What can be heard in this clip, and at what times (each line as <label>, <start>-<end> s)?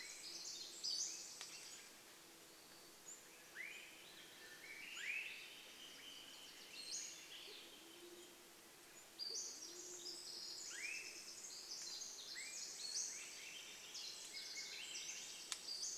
Pacific Wren song, 0-2 s
insect buzz, 0-8 s
Pacific-slope Flycatcher call, 0-10 s
Swainson's Thrush call, 2-6 s
Swainson's Thrush song, 2-8 s
Wilson's Warbler song, 6-8 s
Band-tailed Pigeon song, 6-10 s
Pacific Wren song, 8-16 s
Swainson's Thrush call, 10-12 s
Pacific-slope Flycatcher call, 12-16 s
Swainson's Thrush song, 12-16 s